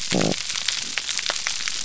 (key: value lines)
label: biophony
recorder: SoundTrap 300